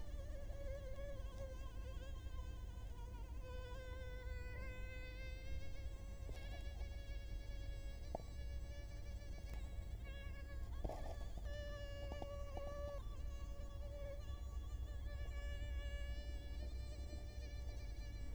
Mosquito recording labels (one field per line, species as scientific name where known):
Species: Culex quinquefasciatus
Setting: cup